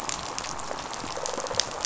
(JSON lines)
{"label": "biophony, rattle response", "recorder": "SoundTrap 500"}